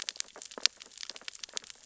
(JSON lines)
{"label": "biophony, sea urchins (Echinidae)", "recorder": "SoundTrap 600 or HydroMoth"}